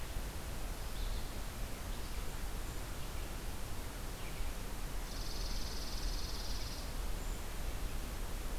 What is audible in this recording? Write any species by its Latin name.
Certhia americana, Spizella passerina